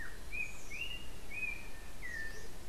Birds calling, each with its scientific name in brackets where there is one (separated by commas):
Yellow-backed Oriole (Icterus chrysater)